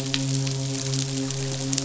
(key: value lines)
label: biophony, midshipman
recorder: SoundTrap 500